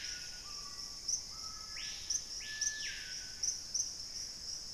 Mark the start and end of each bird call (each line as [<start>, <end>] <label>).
[0.00, 0.94] Black-capped Becard (Pachyramphus marginatus)
[0.00, 2.64] Black-faced Antthrush (Formicarius analis)
[0.00, 4.73] Screaming Piha (Lipaugus vociferans)
[3.04, 4.73] Gray Antbird (Cercomacra cinerascens)